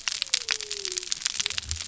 {"label": "biophony", "recorder": "SoundTrap 300"}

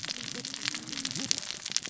{"label": "biophony, cascading saw", "recorder": "SoundTrap 600 or HydroMoth"}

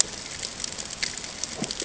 {"label": "ambient", "recorder": "HydroMoth"}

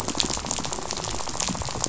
{"label": "biophony, rattle", "recorder": "SoundTrap 500"}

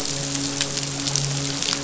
{"label": "biophony, midshipman", "recorder": "SoundTrap 500"}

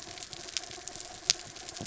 {"label": "anthrophony, mechanical", "recorder": "SoundTrap 300"}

